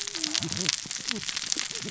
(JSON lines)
{"label": "biophony, cascading saw", "recorder": "SoundTrap 600 or HydroMoth"}